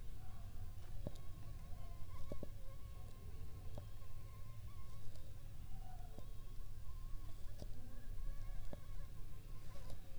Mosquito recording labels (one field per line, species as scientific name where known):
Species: Anopheles funestus s.s.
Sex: female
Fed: unfed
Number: one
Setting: cup